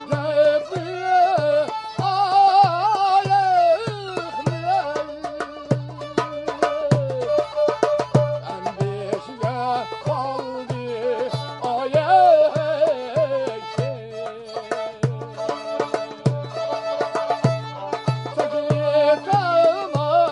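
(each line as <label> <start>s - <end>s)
A drum thumps rhythmically at a low volume. 0.0s - 20.3s
A string instrument plays a tune continuously at moderate volume in an open area. 0.0s - 20.3s
A wooden percussion instrument rhythmically produces a clicking sound continuously. 0.0s - 20.3s
A man sings melodically in a foreign language with varying pitches and volume in an open area. 0.0s - 20.3s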